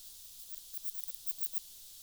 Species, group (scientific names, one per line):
Odontura stenoxypha
Orthoptera